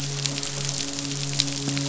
{"label": "biophony, midshipman", "recorder": "SoundTrap 500"}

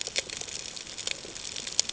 {"label": "ambient", "recorder": "HydroMoth"}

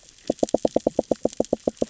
{"label": "biophony, knock", "recorder": "SoundTrap 600 or HydroMoth"}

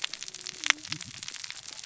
{"label": "biophony, cascading saw", "recorder": "SoundTrap 600 or HydroMoth"}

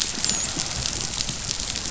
{"label": "biophony, dolphin", "recorder": "SoundTrap 500"}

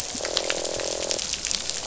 {"label": "biophony, croak", "recorder": "SoundTrap 500"}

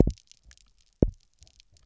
{"label": "biophony, double pulse", "recorder": "SoundTrap 300"}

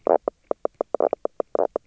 {"label": "biophony, knock croak", "recorder": "SoundTrap 300"}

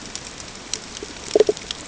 {"label": "ambient", "recorder": "HydroMoth"}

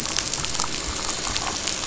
{"label": "biophony, damselfish", "recorder": "SoundTrap 500"}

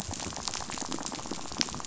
{"label": "biophony, rattle", "recorder": "SoundTrap 500"}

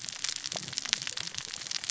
{"label": "biophony, cascading saw", "recorder": "SoundTrap 600 or HydroMoth"}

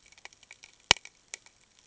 {"label": "ambient", "recorder": "HydroMoth"}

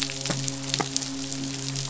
{"label": "biophony, midshipman", "recorder": "SoundTrap 500"}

